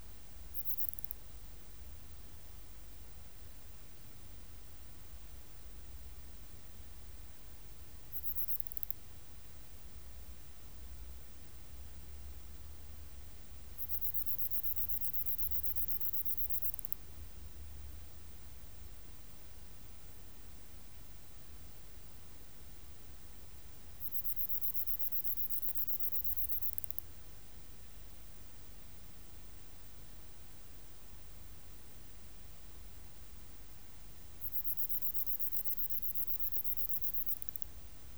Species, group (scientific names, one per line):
Platycleis affinis
Orthoptera